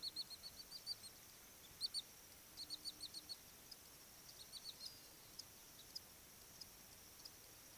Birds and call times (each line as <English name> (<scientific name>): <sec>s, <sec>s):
Wood Sandpiper (Tringa glareola): 2.0s